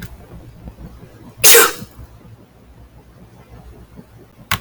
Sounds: Sneeze